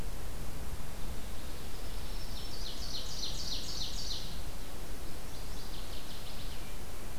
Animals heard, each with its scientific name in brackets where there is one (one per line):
Ovenbird (Seiurus aurocapilla)
Northern Waterthrush (Parkesia noveboracensis)
Black-throated Green Warbler (Setophaga virens)